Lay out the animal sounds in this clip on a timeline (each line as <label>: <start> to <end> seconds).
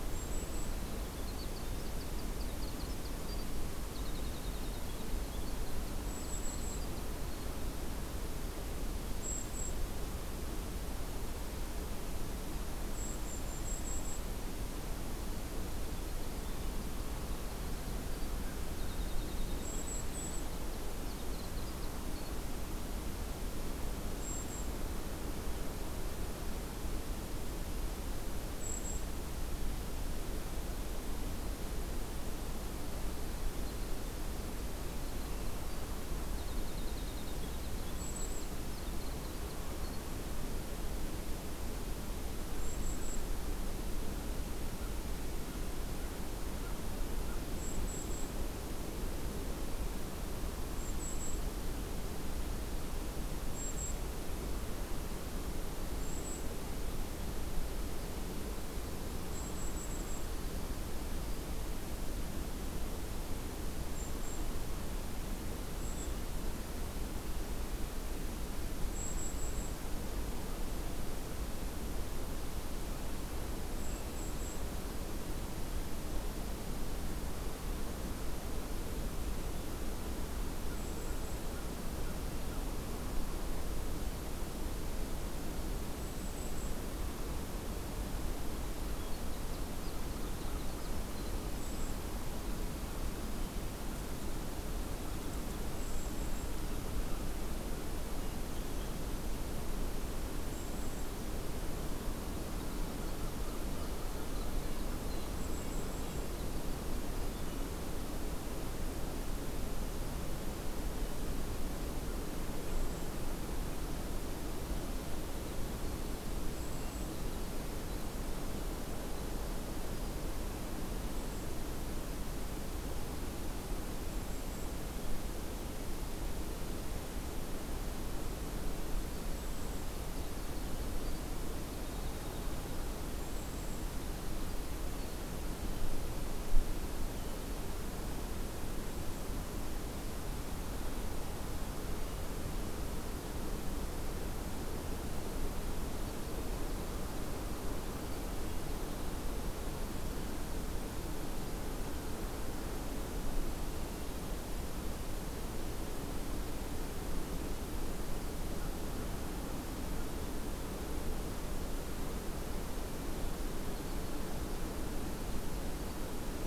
Golden-crowned Kinglet (Regulus satrapa): 0.0 to 0.9 seconds
Winter Wren (Troglodytes hiemalis): 0.7 to 7.6 seconds
Golden-crowned Kinglet (Regulus satrapa): 5.9 to 6.9 seconds
Golden-crowned Kinglet (Regulus satrapa): 9.1 to 9.8 seconds
Golden-crowned Kinglet (Regulus satrapa): 12.9 to 14.2 seconds
Winter Wren (Troglodytes hiemalis): 15.6 to 22.6 seconds
Golden-crowned Kinglet (Regulus satrapa): 19.6 to 20.5 seconds
Golden-crowned Kinglet (Regulus satrapa): 24.2 to 24.7 seconds
Golden-crowned Kinglet (Regulus satrapa): 28.5 to 29.1 seconds
Winter Wren (Troglodytes hiemalis): 33.0 to 40.3 seconds
Golden-crowned Kinglet (Regulus satrapa): 37.9 to 38.6 seconds
Golden-crowned Kinglet (Regulus satrapa): 42.5 to 43.2 seconds
Golden-crowned Kinglet (Regulus satrapa): 47.5 to 48.4 seconds
Golden-crowned Kinglet (Regulus satrapa): 50.7 to 51.4 seconds
Golden-crowned Kinglet (Regulus satrapa): 53.4 to 54.0 seconds
Golden-crowned Kinglet (Regulus satrapa): 55.8 to 56.5 seconds
Golden-crowned Kinglet (Regulus satrapa): 59.2 to 60.3 seconds
Golden-crowned Kinglet (Regulus satrapa): 63.8 to 64.5 seconds
Golden-crowned Kinglet (Regulus satrapa): 65.7 to 66.2 seconds
Golden-crowned Kinglet (Regulus satrapa): 68.9 to 69.9 seconds
Golden-crowned Kinglet (Regulus satrapa): 73.7 to 74.7 seconds
Golden-crowned Kinglet (Regulus satrapa): 80.7 to 81.4 seconds
Golden-crowned Kinglet (Regulus satrapa): 85.9 to 86.7 seconds
Winter Wren (Troglodytes hiemalis): 88.4 to 93.8 seconds
Golden-crowned Kinglet (Regulus satrapa): 91.3 to 92.0 seconds
Golden-crowned Kinglet (Regulus satrapa): 95.6 to 96.5 seconds
Golden-crowned Kinglet (Regulus satrapa): 100.4 to 101.1 seconds
Winter Wren (Troglodytes hiemalis): 101.9 to 107.7 seconds
Golden-crowned Kinglet (Regulus satrapa): 105.3 to 106.2 seconds
Golden-crowned Kinglet (Regulus satrapa): 112.6 to 113.2 seconds
Winter Wren (Troglodytes hiemalis): 115.1 to 119.9 seconds
Golden-crowned Kinglet (Regulus satrapa): 116.4 to 117.1 seconds
Golden-crowned Kinglet (Regulus satrapa): 120.8 to 121.6 seconds
Golden-crowned Kinglet (Regulus satrapa): 124.0 to 124.8 seconds
Winter Wren (Troglodytes hiemalis): 128.7 to 135.2 seconds
Golden-crowned Kinglet (Regulus satrapa): 129.2 to 129.9 seconds
Golden-crowned Kinglet (Regulus satrapa): 133.0 to 133.9 seconds
Golden-crowned Kinglet (Regulus satrapa): 138.7 to 139.3 seconds